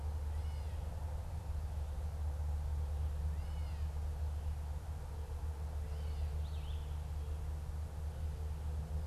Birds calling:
Red-eyed Vireo (Vireo olivaceus), Gray Catbird (Dumetella carolinensis)

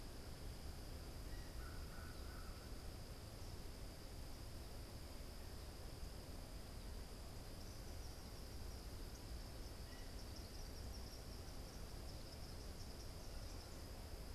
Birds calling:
American Crow (Corvus brachyrhynchos), Eastern Kingbird (Tyrannus tyrannus)

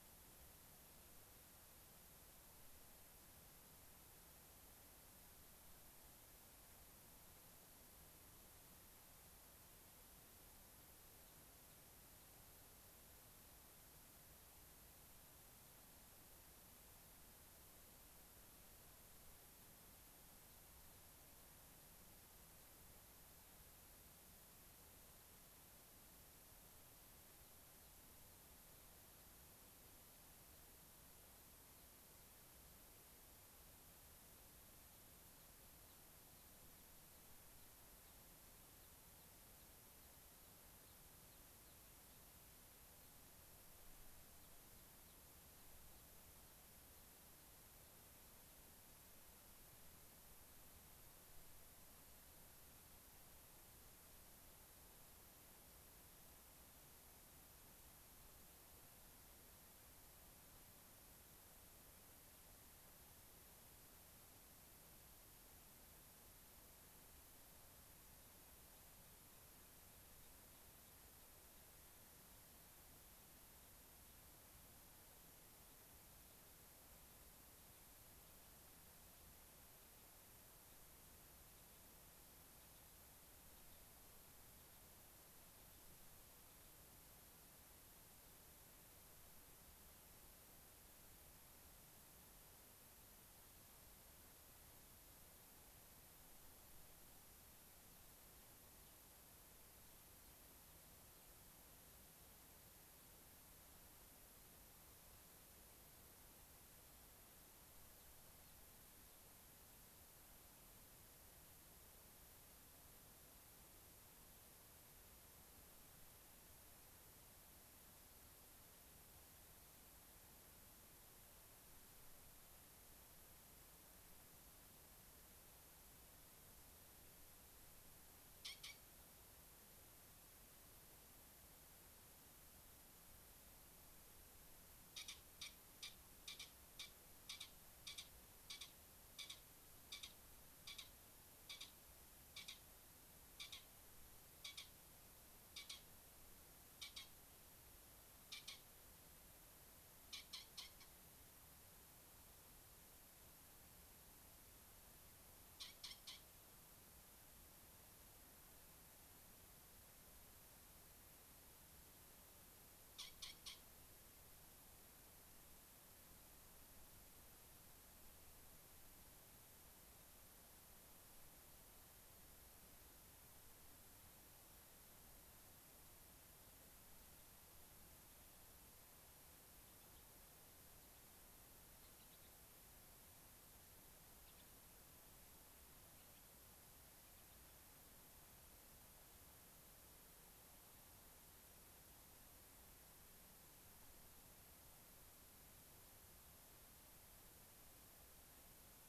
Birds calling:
Gray-crowned Rosy-Finch (Leucosticte tephrocotis)

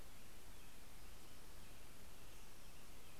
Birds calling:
American Robin (Turdus migratorius)

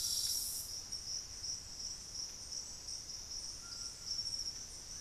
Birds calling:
White-throated Toucan (Ramphastos tucanus)

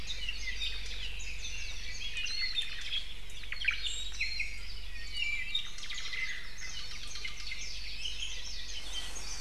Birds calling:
Apapane (Himatione sanguinea), Warbling White-eye (Zosterops japonicus), Omao (Myadestes obscurus), Iiwi (Drepanis coccinea)

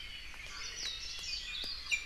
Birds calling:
Warbling White-eye (Zosterops japonicus)

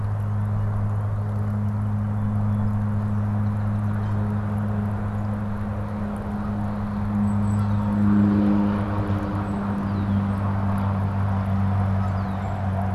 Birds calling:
Northern Cardinal (Cardinalis cardinalis), Song Sparrow (Melospiza melodia), Golden-crowned Kinglet (Regulus satrapa), Red-winged Blackbird (Agelaius phoeniceus), Canada Goose (Branta canadensis)

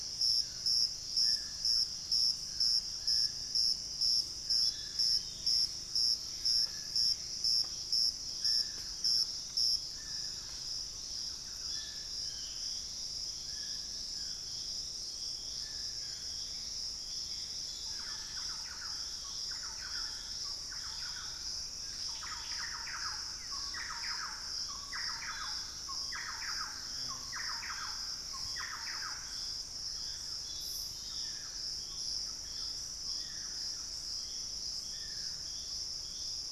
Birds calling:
unidentified bird, Black-faced Antthrush (Formicarius analis), Dusky-throated Antshrike (Thamnomanes ardesiacus), Gray Antbird (Cercomacra cinerascens), Thrush-like Wren (Campylorhynchus turdinus)

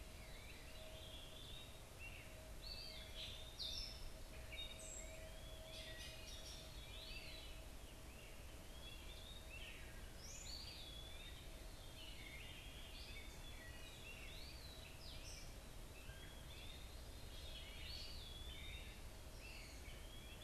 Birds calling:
Great Crested Flycatcher (Myiarchus crinitus), Gray Catbird (Dumetella carolinensis), Eastern Wood-Pewee (Contopus virens), Veery (Catharus fuscescens)

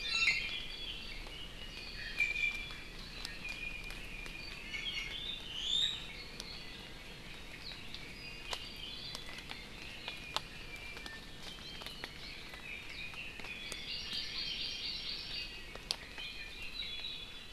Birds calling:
Iiwi (Drepanis coccinea), Red-billed Leiothrix (Leiothrix lutea), Hawaii Amakihi (Chlorodrepanis virens)

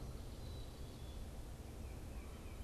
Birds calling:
Black-capped Chickadee (Poecile atricapillus), unidentified bird

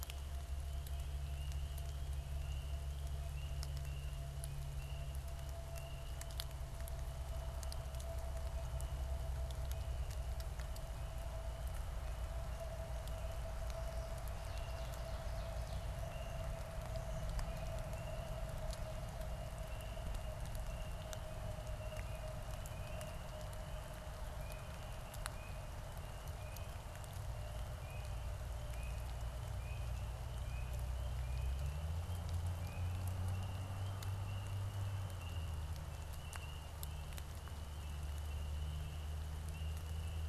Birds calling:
Ovenbird (Seiurus aurocapilla)

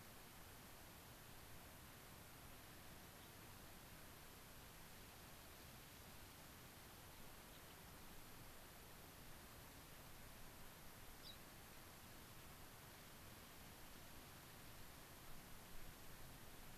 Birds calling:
Gray-crowned Rosy-Finch (Leucosticte tephrocotis)

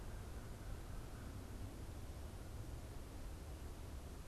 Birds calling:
American Crow (Corvus brachyrhynchos)

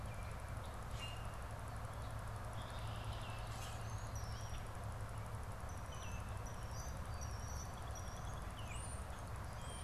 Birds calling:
Red-winged Blackbird (Agelaius phoeniceus), European Starling (Sturnus vulgaris), Common Grackle (Quiscalus quiscula)

